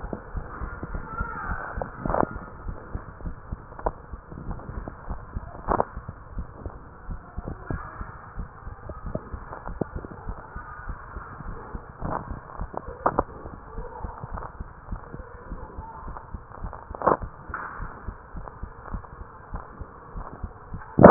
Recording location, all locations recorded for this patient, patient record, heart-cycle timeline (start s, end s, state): mitral valve (MV)
aortic valve (AV)+pulmonary valve (PV)+tricuspid valve (TV)+mitral valve (MV)
#Age: Child
#Sex: Female
#Height: 139.0 cm
#Weight: 34.7 kg
#Pregnancy status: False
#Murmur: Absent
#Murmur locations: nan
#Most audible location: nan
#Systolic murmur timing: nan
#Systolic murmur shape: nan
#Systolic murmur grading: nan
#Systolic murmur pitch: nan
#Systolic murmur quality: nan
#Diastolic murmur timing: nan
#Diastolic murmur shape: nan
#Diastolic murmur grading: nan
#Diastolic murmur pitch: nan
#Diastolic murmur quality: nan
#Outcome: Normal
#Campaign: 2015 screening campaign
0.00	2.64	unannotated
2.64	2.76	S1
2.76	2.92	systole
2.92	3.04	S2
3.04	3.22	diastole
3.22	3.36	S1
3.36	3.50	systole
3.50	3.62	S2
3.62	3.82	diastole
3.82	3.96	S1
3.96	4.12	systole
4.12	4.22	S2
4.22	4.42	diastole
4.42	4.56	S1
4.56	4.74	systole
4.74	4.86	S2
4.86	5.06	diastole
5.06	5.20	S1
5.20	5.36	systole
5.36	5.46	S2
5.46	5.66	diastole
5.66	5.80	S1
5.80	5.96	systole
5.96	6.06	S2
6.06	6.30	diastole
6.30	6.48	S1
6.48	6.64	systole
6.64	6.75	S2
6.75	7.06	diastole
7.06	7.20	S1
7.20	7.34	systole
7.34	7.48	S2
7.48	7.68	diastole
7.68	7.84	S1
7.84	8.00	systole
8.00	8.10	S2
8.10	8.34	diastole
8.34	8.48	S1
8.48	8.66	systole
8.66	8.80	S2
8.80	9.02	diastole
9.02	9.16	S1
9.16	9.30	systole
9.30	9.48	S2
9.48	9.66	diastole
9.66	9.76	S1
9.76	9.92	systole
9.92	10.02	S2
10.02	10.22	diastole
10.22	10.36	S1
10.36	10.54	systole
10.54	10.66	S2
10.66	10.86	diastole
10.86	10.96	S1
10.96	11.14	systole
11.14	11.24	S2
11.24	11.44	diastole
11.44	11.56	S1
11.56	11.70	systole
11.70	11.82	S2
11.82	12.02	diastole
12.02	12.14	S1
12.14	12.28	systole
12.28	12.38	S2
12.38	12.58	diastole
12.58	12.70	S1
12.70	12.86	systole
12.86	12.96	S2
12.96	13.14	diastole
13.14	13.26	S1
13.26	13.43	systole
13.43	13.54	S2
13.54	13.76	diastole
13.76	13.88	S1
13.88	14.04	systole
14.04	14.16	S2
14.16	14.32	diastole
14.32	14.40	S1
14.40	14.56	systole
14.56	14.68	S2
14.68	14.90	diastole
14.90	15.00	S1
15.00	15.18	systole
15.18	15.26	S2
15.26	15.48	diastole
15.48	15.60	S1
15.60	15.76	systole
15.76	15.86	S2
15.86	16.04	diastole
16.04	16.16	S1
16.16	16.32	systole
16.32	16.42	S2
16.42	16.58	diastole
16.58	16.72	S1
16.72	16.88	systole
16.88	16.98	S2
16.98	17.20	diastole
17.20	17.30	S1
17.30	21.10	unannotated